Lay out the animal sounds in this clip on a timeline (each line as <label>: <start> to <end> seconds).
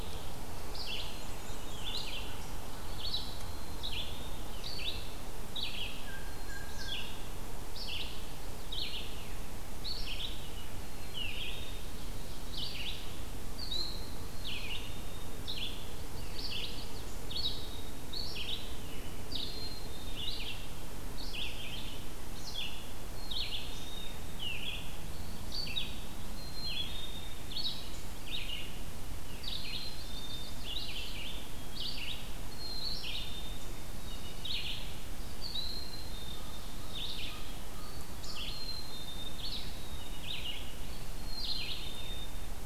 Red-eyed Vireo (Vireo olivaceus): 0.0 to 26.0 seconds
Black-and-white Warbler (Mniotilta varia): 0.8 to 2.2 seconds
American Crow (Corvus brachyrhynchos): 6.1 to 7.1 seconds
Black-capped Chickadee (Poecile atricapillus): 14.2 to 15.3 seconds
Black-capped Chickadee (Poecile atricapillus): 19.3 to 20.4 seconds
Black-capped Chickadee (Poecile atricapillus): 23.1 to 24.5 seconds
Black-capped Chickadee (Poecile atricapillus): 26.2 to 27.4 seconds
Red-eyed Vireo (Vireo olivaceus): 26.4 to 42.7 seconds
Black-capped Chickadee (Poecile atricapillus): 29.4 to 30.7 seconds
Chestnut-sided Warbler (Setophaga pensylvanica): 29.6 to 30.8 seconds
Black-capped Chickadee (Poecile atricapillus): 32.4 to 33.7 seconds
Black-capped Chickadee (Poecile atricapillus): 35.7 to 36.8 seconds
Common Raven (Corvus corax): 36.6 to 38.6 seconds
Black-capped Chickadee (Poecile atricapillus): 38.3 to 40.7 seconds
Black-capped Chickadee (Poecile atricapillus): 41.2 to 42.5 seconds